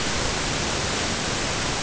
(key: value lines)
label: ambient
recorder: HydroMoth